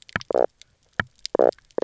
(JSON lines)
{"label": "biophony, knock croak", "recorder": "SoundTrap 300"}